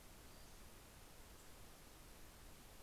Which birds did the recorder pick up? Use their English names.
Pacific-slope Flycatcher